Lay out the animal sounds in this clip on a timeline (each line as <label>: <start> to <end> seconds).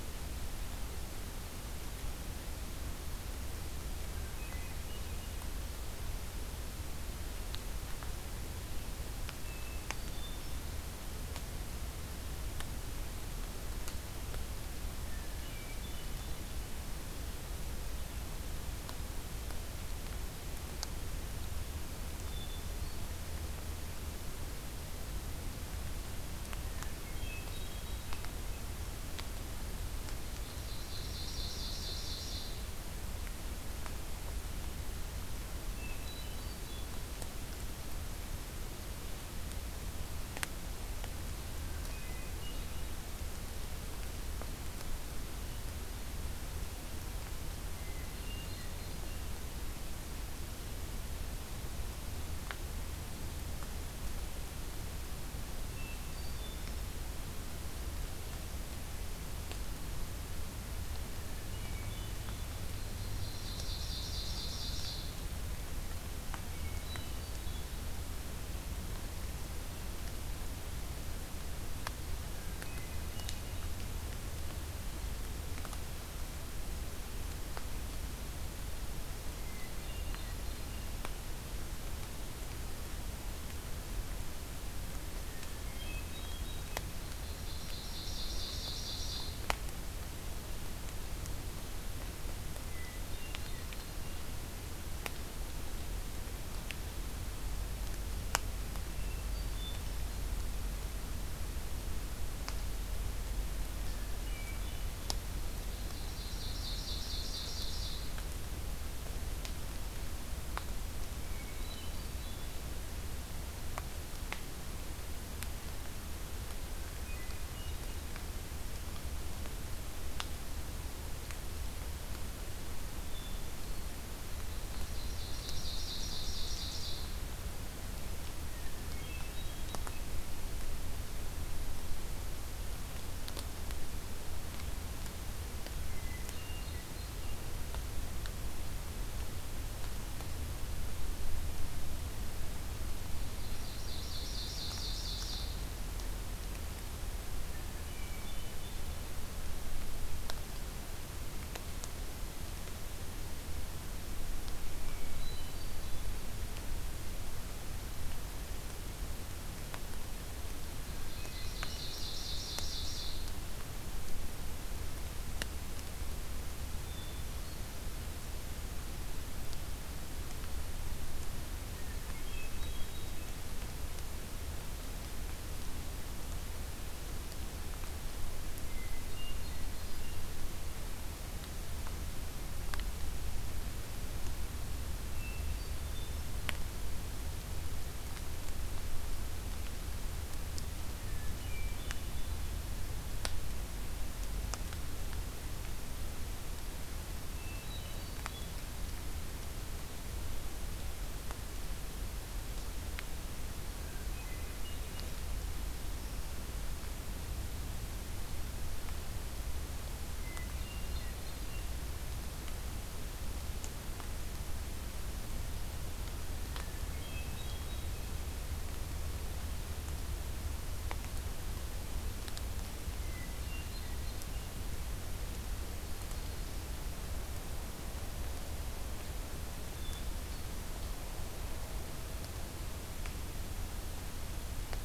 Hermit Thrush (Catharus guttatus): 4.3 to 5.3 seconds
Hermit Thrush (Catharus guttatus): 9.4 to 10.6 seconds
Hermit Thrush (Catharus guttatus): 15.0 to 16.5 seconds
Hermit Thrush (Catharus guttatus): 22.2 to 23.3 seconds
Hermit Thrush (Catharus guttatus): 26.8 to 28.2 seconds
Ovenbird (Seiurus aurocapilla): 30.2 to 32.6 seconds
Hermit Thrush (Catharus guttatus): 35.8 to 37.0 seconds
Hermit Thrush (Catharus guttatus): 41.8 to 42.8 seconds
Hermit Thrush (Catharus guttatus): 47.8 to 49.3 seconds
Hermit Thrush (Catharus guttatus): 55.7 to 56.9 seconds
Hermit Thrush (Catharus guttatus): 61.2 to 62.5 seconds
Ovenbird (Seiurus aurocapilla): 63.1 to 65.0 seconds
Hermit Thrush (Catharus guttatus): 66.5 to 67.9 seconds
Hermit Thrush (Catharus guttatus): 72.2 to 73.7 seconds
Hermit Thrush (Catharus guttatus): 79.3 to 80.9 seconds
Hermit Thrush (Catharus guttatus): 85.2 to 86.9 seconds
Ovenbird (Seiurus aurocapilla): 87.2 to 89.4 seconds
Hermit Thrush (Catharus guttatus): 92.6 to 94.3 seconds
Hermit Thrush (Catharus guttatus): 98.9 to 99.9 seconds
Hermit Thrush (Catharus guttatus): 103.8 to 105.0 seconds
Ovenbird (Seiurus aurocapilla): 105.4 to 108.3 seconds
Hermit Thrush (Catharus guttatus): 111.1 to 112.6 seconds
Hermit Thrush (Catharus guttatus): 116.8 to 117.9 seconds
Hermit Thrush (Catharus guttatus): 122.9 to 124.0 seconds
Ovenbird (Seiurus aurocapilla): 124.7 to 127.2 seconds
Hermit Thrush (Catharus guttatus): 128.5 to 129.9 seconds
Hermit Thrush (Catharus guttatus): 135.8 to 137.4 seconds
Ovenbird (Seiurus aurocapilla): 143.3 to 145.6 seconds
Hermit Thrush (Catharus guttatus): 147.5 to 148.8 seconds
Hermit Thrush (Catharus guttatus): 154.7 to 156.1 seconds
Hermit Thrush (Catharus guttatus): 160.7 to 162.1 seconds
Ovenbird (Seiurus aurocapilla): 161.0 to 163.2 seconds
Hermit Thrush (Catharus guttatus): 166.8 to 167.9 seconds
Hermit Thrush (Catharus guttatus): 171.7 to 173.3 seconds
Hermit Thrush (Catharus guttatus): 178.6 to 180.2 seconds
Hermit Thrush (Catharus guttatus): 185.0 to 186.3 seconds
Hermit Thrush (Catharus guttatus): 191.0 to 192.5 seconds
Hermit Thrush (Catharus guttatus): 197.3 to 198.6 seconds
Hermit Thrush (Catharus guttatus): 203.6 to 205.0 seconds
Hermit Thrush (Catharus guttatus): 210.1 to 211.7 seconds
Hermit Thrush (Catharus guttatus): 216.6 to 218.4 seconds
Hermit Thrush (Catharus guttatus): 222.9 to 224.5 seconds
Black-throated Green Warbler (Setophaga virens): 225.4 to 226.8 seconds
Hermit Thrush (Catharus guttatus): 229.6 to 231.0 seconds